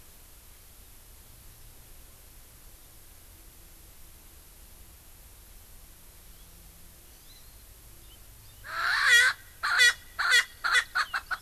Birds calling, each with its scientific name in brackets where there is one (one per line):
Erckel's Francolin (Pternistis erckelii)
Hawaii Amakihi (Chlorodrepanis virens)